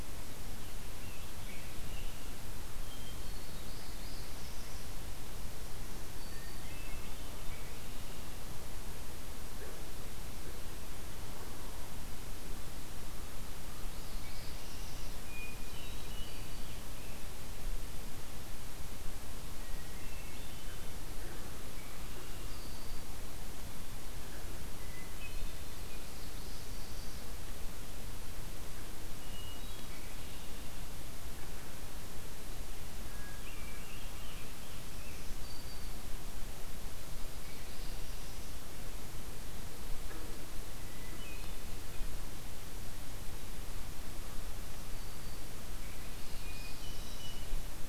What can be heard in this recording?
Scarlet Tanager, Hermit Thrush, Northern Parula, Black-throated Green Warbler, Red-winged Blackbird